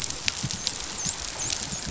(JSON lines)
{"label": "biophony, dolphin", "recorder": "SoundTrap 500"}